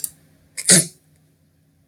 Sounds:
Sneeze